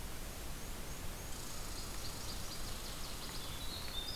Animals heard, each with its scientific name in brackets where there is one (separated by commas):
Black-and-white Warbler (Mniotilta varia), Winter Wren (Troglodytes hiemalis), Northern Waterthrush (Parkesia noveboracensis)